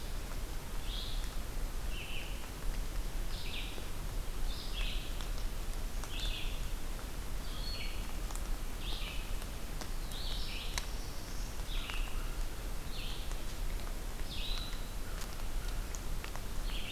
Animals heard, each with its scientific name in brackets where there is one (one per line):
American Crow (Corvus brachyrhynchos)
Red-eyed Vireo (Vireo olivaceus)
Black-throated Blue Warbler (Setophaga caerulescens)